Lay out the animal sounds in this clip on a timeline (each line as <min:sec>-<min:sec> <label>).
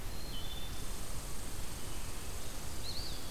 0:00.0-0:00.9 Wood Thrush (Hylocichla mustelina)
0:00.7-0:03.3 Red Squirrel (Tamiasciurus hudsonicus)
0:02.7-0:03.3 Eastern Wood-Pewee (Contopus virens)